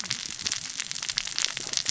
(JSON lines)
{"label": "biophony, cascading saw", "recorder": "SoundTrap 600 or HydroMoth"}